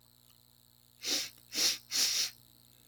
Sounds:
Sniff